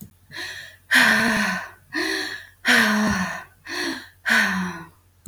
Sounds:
Sigh